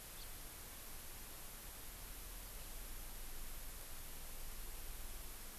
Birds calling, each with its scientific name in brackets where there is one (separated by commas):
House Finch (Haemorhous mexicanus)